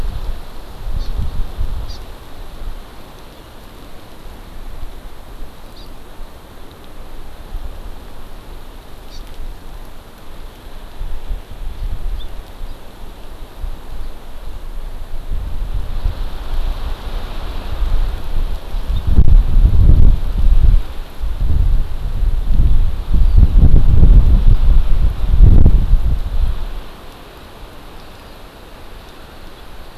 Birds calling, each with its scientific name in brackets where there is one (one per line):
Hawaii Amakihi (Chlorodrepanis virens)